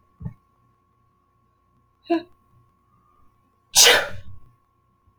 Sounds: Sneeze